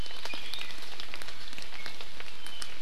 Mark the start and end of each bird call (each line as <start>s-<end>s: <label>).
0.0s-0.7s: Iiwi (Drepanis coccinea)